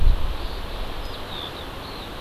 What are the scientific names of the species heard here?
Alauda arvensis